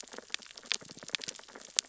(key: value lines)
label: biophony, sea urchins (Echinidae)
recorder: SoundTrap 600 or HydroMoth